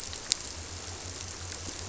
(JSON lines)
{"label": "biophony", "recorder": "SoundTrap 300"}